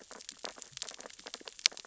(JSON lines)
{"label": "biophony, sea urchins (Echinidae)", "recorder": "SoundTrap 600 or HydroMoth"}